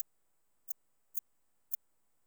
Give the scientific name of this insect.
Eupholidoptera smyrnensis